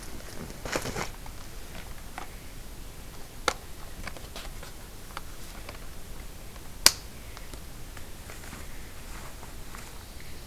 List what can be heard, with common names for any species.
forest ambience